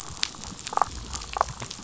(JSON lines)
{"label": "biophony, damselfish", "recorder": "SoundTrap 500"}